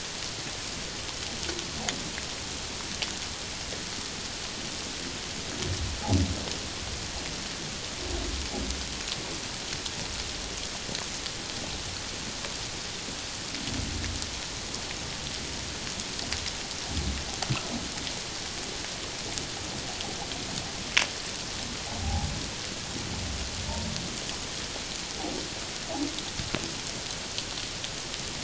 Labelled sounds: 22.0	22.3	humpback whale, 0.78 to 0.94 kHz

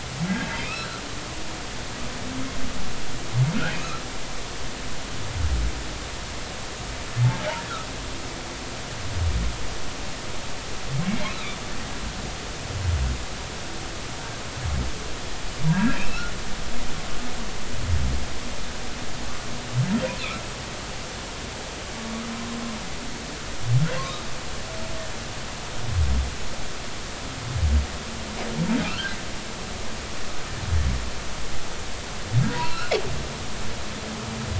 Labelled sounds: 0.3	1.0	humpback whale, 1.5 to 4.1 kHz
3.7	4.0	humpback whale, 2.4 to 2.7 kHz
11.3	11.6	humpback whale, 3.4 to 4.1 kHz
15.7	16.3	humpback whale, 1.6 to 2.9 kHz
22.0	22.3	humpback whale, 1.1 to 1.3 kHz
28.8	29.2	humpback whale, 1.2 to 3.2 kHz
32.5	32.9	humpback whale, 0.90 to 4.2 kHz

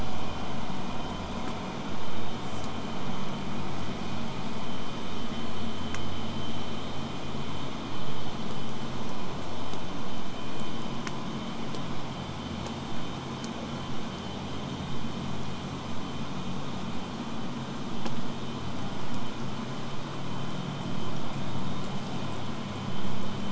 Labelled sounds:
2.4	2.7	killer whale, southern resident, J pod, call S05, 4.8 to 8.0 kHz

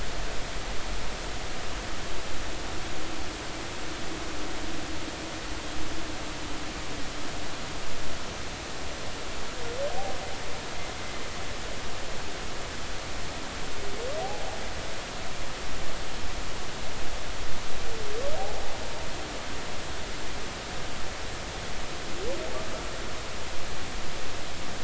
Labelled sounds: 14.2	14.5	humpback whale, 0.80 to 0.90 kHz

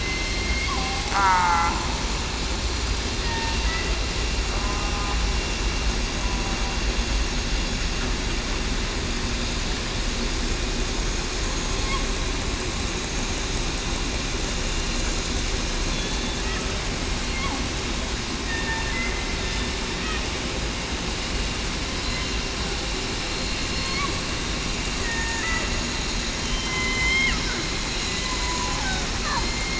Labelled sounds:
0.0	1.7	killer whale, southern resident, 0.75 to 2.2 kHz
3.2	3.5	killer whale, southern resident, 1.8 to 1.9 kHz
18.5	19.3	killer whale, southern resident, 1.8 to 3.7 kHz
23.2	23.7	killer whale, southern resident, 4.17 to 4.24 kHz
25.0	25.4	killer whale, southern resident, 1.6 to 2.0 kHz
26.4	27.3	killer whale, southern resident, 3.0 to 3.2 kHz
28.4	28.8	killer whale, southern resident, 0.94 to 1.1 kHz

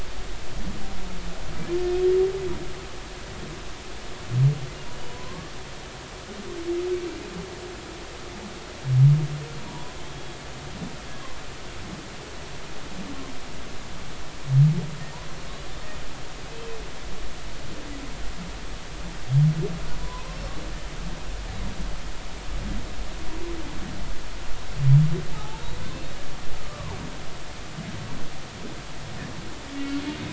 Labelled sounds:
4.9	5.5	humpback whale, 0.96 to 3.0 kHz
9.7	10.4	humpback whale, 0.86 to 3.4 kHz
20.0	20.3	humpback whale, 0.86 to 1.1 kHz
26.6	27.0	humpback whale, 0.80 to 1.3 kHz

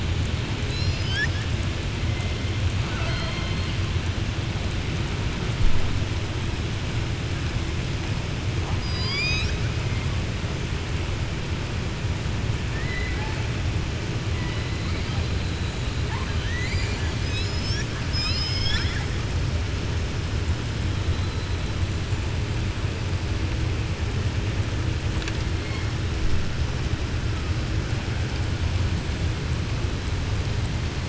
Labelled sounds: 2.8	3.7	killer whale, southern resident, 0.64 to 4.7 kHz
8.7	9.6	killer whale, southern resident, 1.1 to 7.5 kHz
12.6	13.4	killer whale, southern resident, 0.77 to 2.5 kHz
16.0	17.1	killer whale, southern resident, 0.92 to 7.9 kHz
18.0	19.1	killer whale, southern resident, 1.3 to 7.9 kHz

